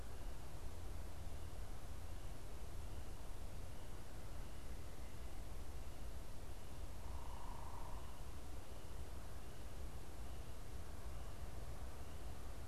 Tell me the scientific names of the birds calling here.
unidentified bird